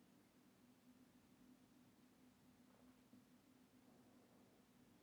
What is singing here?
Odontura aspericauda, an orthopteran